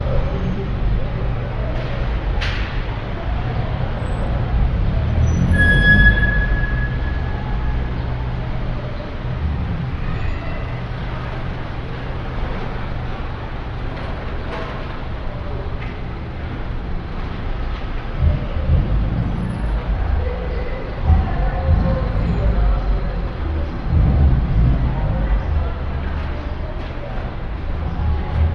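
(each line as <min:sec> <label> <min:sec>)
0:00.0 Several people are talking with overlapping voices in an urban environment. 0:05.0
0:00.0 Vehicles continuously emitting muffled engine noises in an urban environment. 0:05.1
0:05.0 A vehicle brakes with a fading, echoing squeak. 0:07.5
0:05.4 A vehicle is revving its engine in the distance. 0:06.6
0:07.5 Several people are talking with overlapping voices in an urban environment. 0:28.5
0:18.0 A vehicle revs its engine in short bursts with small pauses, with an echo. 0:26.0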